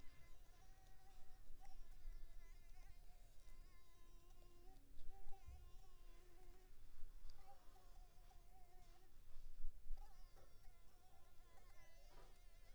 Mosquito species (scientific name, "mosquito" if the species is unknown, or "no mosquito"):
Anopheles arabiensis